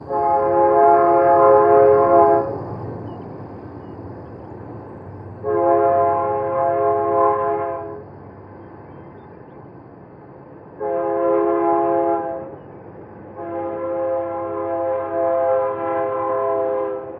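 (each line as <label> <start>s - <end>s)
A train horn sounds. 0.0s - 2.5s
A train is rolling in the distance. 2.5s - 5.5s
A train horn sounds. 5.4s - 8.1s
Traffic sounds in the distance. 8.1s - 10.8s
A train horn sounds. 10.8s - 12.6s
Traffic sounds in the distance. 12.6s - 13.4s
A train horn sounds. 13.4s - 17.2s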